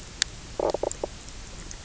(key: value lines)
label: biophony, knock croak
recorder: SoundTrap 300